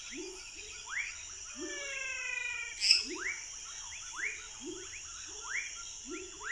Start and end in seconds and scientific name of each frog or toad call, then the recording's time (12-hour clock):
0.0	5.7	Boana raniceps
0.0	6.5	Leptodactylus fuscus
0.0	6.5	Leptodactylus labyrinthicus
1.5	3.2	Physalaemus albonotatus
2.8	3.2	Dendropsophus minutus
8:30pm